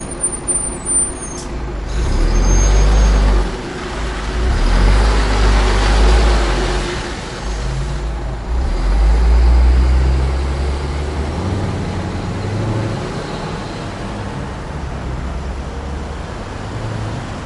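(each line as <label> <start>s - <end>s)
A loud truck passes through an urban environment with a consistent engine hum and background city noise. 0.0s - 17.3s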